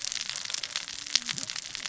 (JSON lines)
{"label": "biophony, cascading saw", "recorder": "SoundTrap 600 or HydroMoth"}